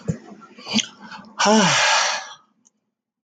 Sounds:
Sigh